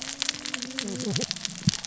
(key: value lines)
label: biophony, cascading saw
recorder: SoundTrap 600 or HydroMoth